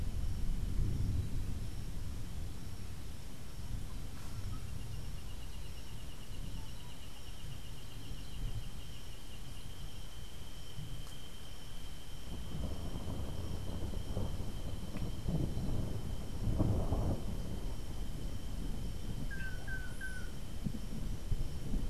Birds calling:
Long-tailed Manakin (Chiroxiphia linearis)

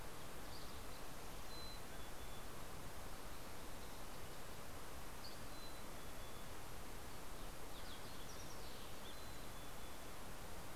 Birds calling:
Mountain Chickadee (Poecile gambeli)
Mountain Quail (Oreortyx pictus)
Dusky Flycatcher (Empidonax oberholseri)
Fox Sparrow (Passerella iliaca)

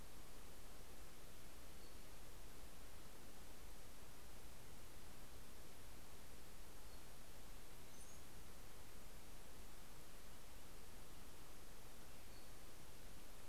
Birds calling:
Pacific-slope Flycatcher (Empidonax difficilis)
Brown-headed Cowbird (Molothrus ater)

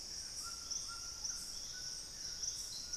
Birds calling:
White-throated Toucan (Ramphastos tucanus)

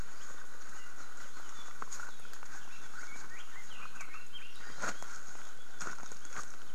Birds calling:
Red-billed Leiothrix (Leiothrix lutea)

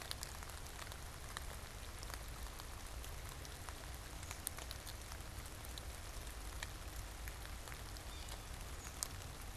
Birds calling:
Yellow-bellied Sapsucker (Sphyrapicus varius)
American Robin (Turdus migratorius)

